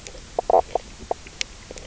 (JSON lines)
{"label": "biophony, knock croak", "recorder": "SoundTrap 300"}